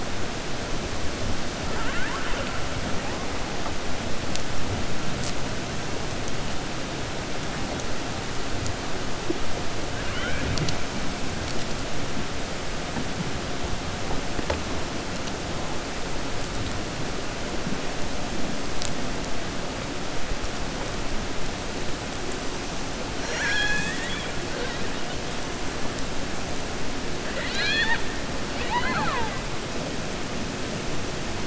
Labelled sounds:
1.6	2.5	killer whale, 0.51 to 3.1 kHz
23.1	24.3	killer whale, 0.84 to 7.8 kHz
27.2	28.0	killer whale, 0.91 to 6.9 kHz

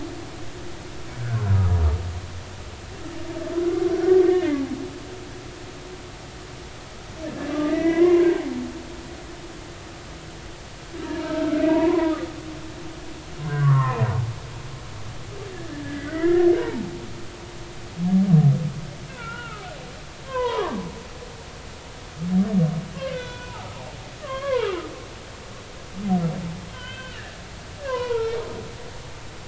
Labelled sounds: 1.2	1.5	humpback whale, 1.3 to 1.7 kHz
4.3	4.6	humpback whale, 2.0 to 2.2 kHz
7.5	8.3	humpback whale, 0.93 to 2.4 kHz
11.2	12.1	humpback whale, 0.90 to 2.0 kHz
13.4	14.0	humpback whale, 0.90 to 2.0 kHz
15.8	16.9	humpback whale, 0.80 to 2.1 kHz
19.1	19.7	humpback whale, 1.2 to 2.9 kHz
20.2	20.8	humpback whale, 0.90 to 3.2 kHz
23.1	23.7	humpback whale, 0.80 to 3.6 kHz
24.2	24.8	humpback whale, 0.83 to 2.9 kHz
26.7	28.4	humpback whale, 0.86 to 3.2 kHz

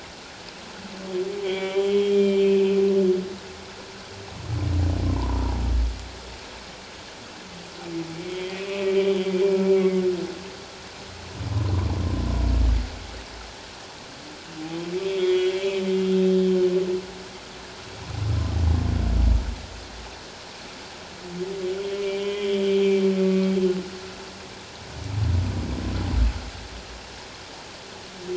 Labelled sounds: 1.4	2.8	humpback whale, 0.78 to 3.5 kHz
5.0	5.5	humpback whale, 0.84 to 1.1 kHz
8.3	8.7	humpback whale, 2.3 to 3.4 kHz
9.8	10.0	humpback whale, 2.0 to 2.1 kHz
15.0	16.7	humpback whale, 2.0 to 3.7 kHz
21.9	23.5	humpback whale, 1.1 to 3.6 kHz

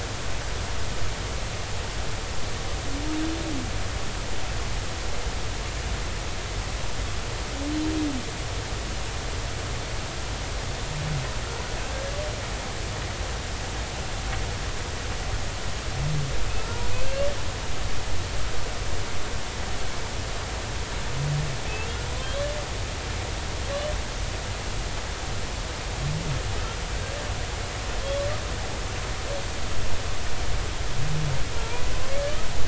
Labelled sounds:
22.2	22.5	humpback whale, 3.1 to 3.5 kHz
31.5	31.8	humpback whale, 0.86 to 1.0 kHz

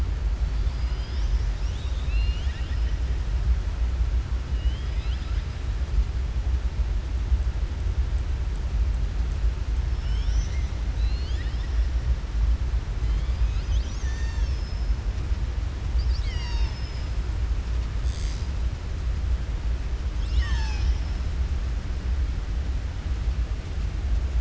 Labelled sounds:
4.5	5.5	killer whale, southern resident, 1.3 to 5.0 kHz

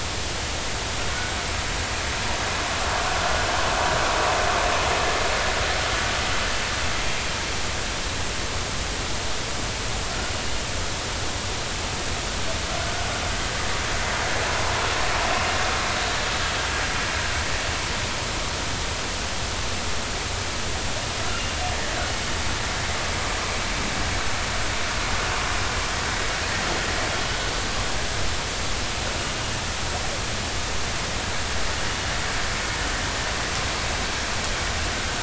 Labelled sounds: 21.3	21.6	killer whale, northern resident, G clan, 2.75 to 2.85 kHz

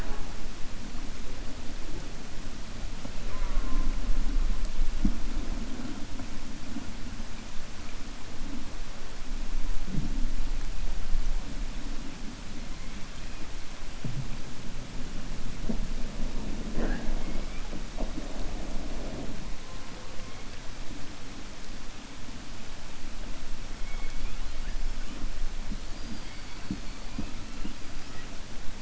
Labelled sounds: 23.8	24.4	killer whale, 1.5 to 3.4 kHz

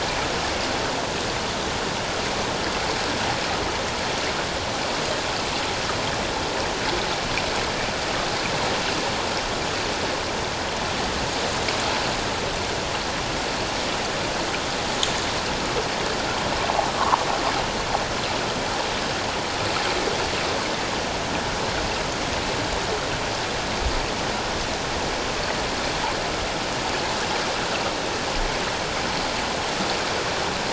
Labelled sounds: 16.9	17.2	sound from a nearby beach, 0.84 to 1.3 kHz

